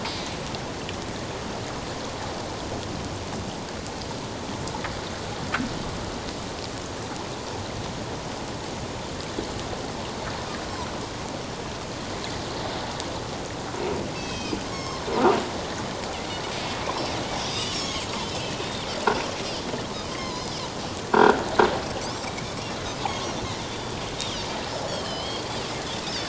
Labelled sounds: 14.1	15.1	Pacific white-sided dolphin, 1.0 to 6.7 kHz
17.5	18.9	Pacific white-sided dolphin, 2.5 to 6.8 kHz
20.1	20.5	Pacific white-sided dolphin, 0.94 to 5.4 kHz
21.1	21.4	croaking sound likely from a nearby submerged object, 1.3 to 1.7 kHz
23.1	25.4	Pacific white-sided dolphin, 2.7 to 6.8 kHz

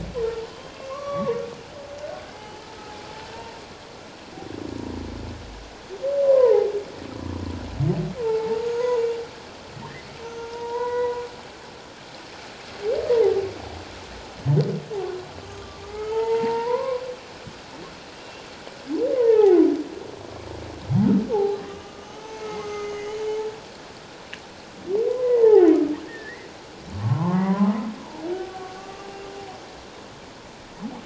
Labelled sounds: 1.0	1.3	humpback whale, 2.2 to 2.3 kHz
2.3	2.7	humpback whale, 0.81 to 3.1 kHz
6.2	6.7	humpback whale, 0.78 to 1.1 kHz
8.2	9.0	humpback whale, 0.81 to 1.1 kHz
10.3	11.3	humpback whale, 0.84 to 4.0 kHz
13.1	13.4	humpback whale, 0.78 to 1.0 kHz
15.5	17.0	humpback whale, 0.84 to 2.3 kHz
18.1	18.4	humpback whale, 2.7 to 2.9 kHz
19.1	19.6	humpback whale, 0.78 to 2.2 kHz
21.3	23.4	humpback whale, 0.78 to 6.3 kHz
25.0	25.8	humpback whale, 0.78 to 2.2 kHz
26.1	26.5	humpback whale, 1.6 to 2.1 kHz
27.0	27.7	humpback whale, 0.81 to 1.2 kHz
28.8	29.1	humpback whale, 1.1 to 1.2 kHz

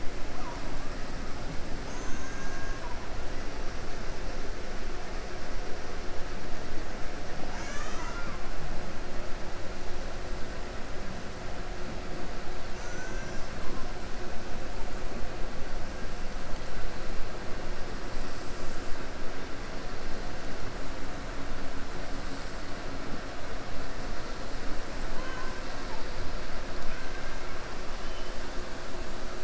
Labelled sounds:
1.8	2.8	killer whale, 5.1 to 7.7 kHz
12.7	13.5	killer whale, 0.93 to 7.9 kHz

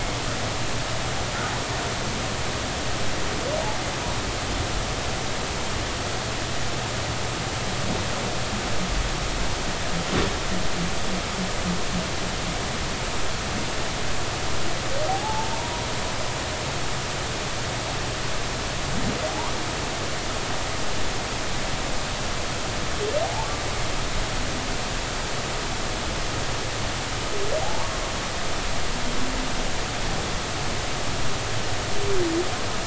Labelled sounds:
15.1	15.8	humpback whale, 0.80 to 0.99 kHz
19.3	19.5	humpback whale, 0.80 to 1.2 kHz
27.6	27.9	humpback whale, 0.80 to 1.2 kHz

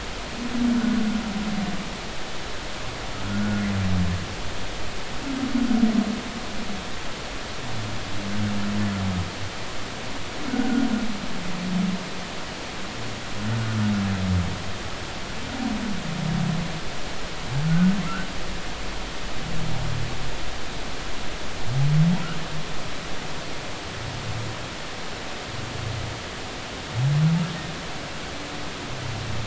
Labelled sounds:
3.3	3.6	humpback whale, 1.3 to 1.6 kHz
10.5	10.9	humpback whale, 1.4 to 1.6 kHz
17.7	18.0	humpback whale, 1.4 to 1.6 kHz

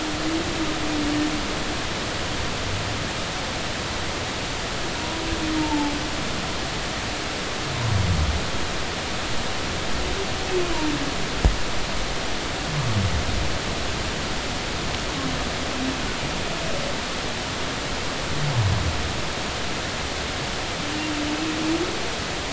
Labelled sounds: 5.6	5.9	humpback whale, 0.83 to 0.96 kHz

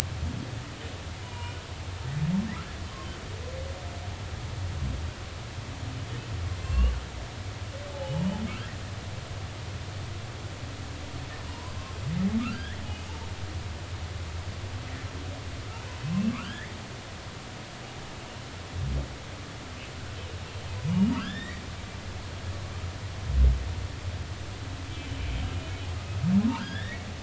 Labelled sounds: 1.2	1.6	humpback whale, 0.90 to 3.0 kHz
6.6	6.9	humpback whale, 0.99 to 2.9 kHz
8.0	8.2	humpback whale, 2.9 to 3.0 kHz
11.5	11.7	humpback whale, 0.90 to 1.1 kHz
12.4	12.8	humpback whale, 1.2 to 2.0 kHz
16.3	16.8	humpback whale, 1.4 to 3.5 kHz
21.2	21.6	humpback whale, 1.2 to 3.9 kHz
25.4	25.8	humpback whale, 2.9 to 3.1 kHz
26.5	27.1	humpback whale, 0.86 to 3.8 kHz

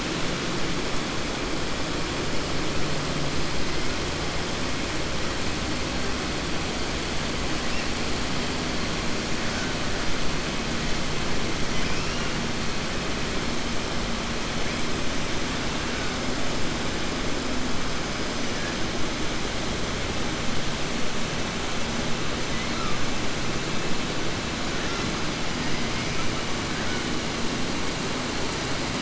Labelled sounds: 22.5	22.9	killer whale, 1.2 to 3.0 kHz

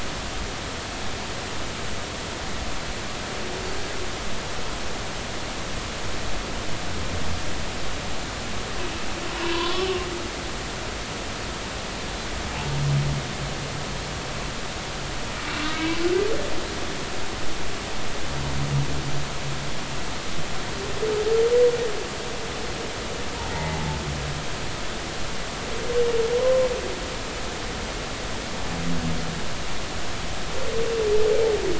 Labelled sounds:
9.3	9.9	humpback whale, 0.93 to 1.2 kHz
15.5	15.9	humpback whale, 1.2 to 2.9 kHz
23.5	23.9	humpback whale, 0.80 to 2.1 kHz

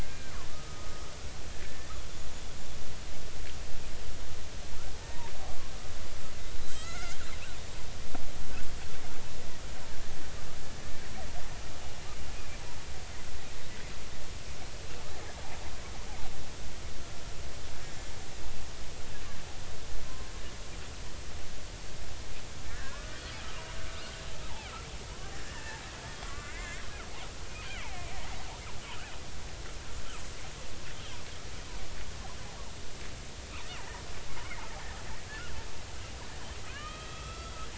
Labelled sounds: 0.0	1.1	killer whale, Bigg's (transient), 1.2 to 1.7 kHz
1.5	1.9	killer whale, Bigg's (transient), 1.7 to 1.9 kHz
4.9	5.3	killer whale, Bigg's (transient), 0.83 to 1.0 kHz
6.7	7.2	killer whale, Bigg's (transient), 1.2 to 8.0 kHz
17.8	18.1	killer whale, Bigg's (transient), 1.7 to 1.9 kHz
22.7	23.2	killer whale, Bigg's (transient), 1.3 to 1.9 kHz
25.3	26.8	killer whale, Bigg's (transient), 0.80 to 2.9 kHz
27.7	28.0	killer whale, Bigg's (transient), 0.80 to 1.7 kHz
36.7	37.6	killer whale, Bigg's (transient), 1.0 to 4.0 kHz

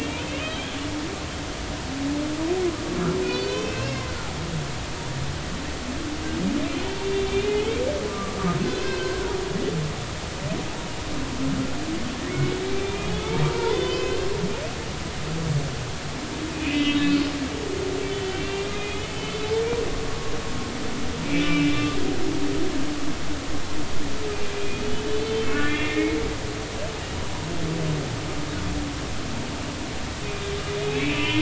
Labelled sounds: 3.3	4.1	humpback whale, 2.0 to 5.7 kHz
6.9	8.4	humpback whale, 1.1 to 3.6 kHz
8.8	9.3	humpback whale, 1.4 to 2.7 kHz
12.3	14.2	humpback whale, 0.80 to 3.6 kHz
16.5	17.0	humpback whale, 2.0 to 3.3 kHz
18.1	19.4	humpback whale, 2.3 to 3.2 kHz
21.2	22.0	humpback whale, 1.1 to 2.7 kHz
25.2	26.2	humpback whale, 1.1 to 3.4 kHz
30.8	31.4	humpback whale, 2.1 to 3.1 kHz

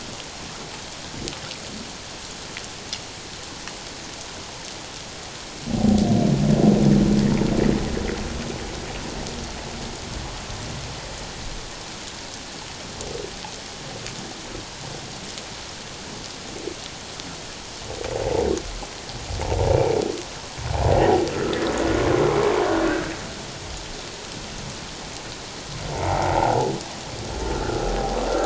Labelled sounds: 22.9	23.1	humpback whale, 1.4 to 1.7 kHz
25.9	27.9	humpback whale, 0.78 to 1.6 kHz

